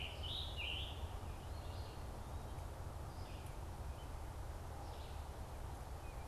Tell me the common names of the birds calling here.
Scarlet Tanager, Red-eyed Vireo